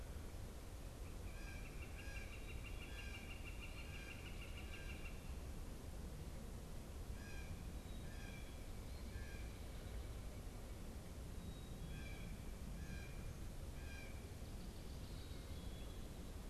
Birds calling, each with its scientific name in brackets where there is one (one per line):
Northern Flicker (Colaptes auratus)
Blue Jay (Cyanocitta cristata)